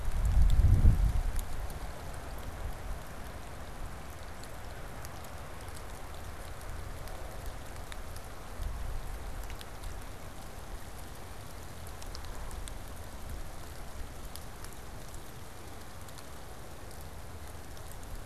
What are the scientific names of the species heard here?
Poecile atricapillus